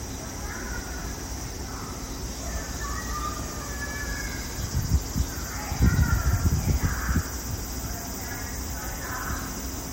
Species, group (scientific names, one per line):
Graptopsaltria nigrofuscata
Cicadidae